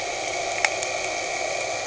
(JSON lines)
{"label": "anthrophony, boat engine", "recorder": "HydroMoth"}